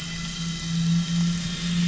{"label": "anthrophony, boat engine", "recorder": "SoundTrap 500"}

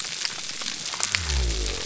{"label": "biophony", "recorder": "SoundTrap 300"}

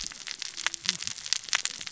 {"label": "biophony, cascading saw", "recorder": "SoundTrap 600 or HydroMoth"}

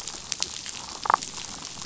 {"label": "biophony, damselfish", "recorder": "SoundTrap 500"}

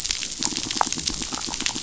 {"label": "biophony", "recorder": "SoundTrap 500"}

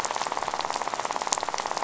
{"label": "biophony, rattle", "recorder": "SoundTrap 500"}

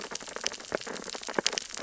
{"label": "biophony, sea urchins (Echinidae)", "recorder": "SoundTrap 600 or HydroMoth"}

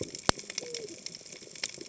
{"label": "biophony, cascading saw", "recorder": "HydroMoth"}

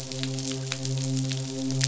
{"label": "biophony, midshipman", "recorder": "SoundTrap 500"}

